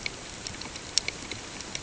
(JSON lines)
{"label": "ambient", "recorder": "HydroMoth"}